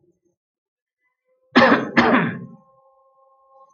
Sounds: Cough